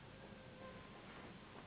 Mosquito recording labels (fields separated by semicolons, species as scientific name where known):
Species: Anopheles gambiae s.s.; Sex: female; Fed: unfed; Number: one; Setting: insect culture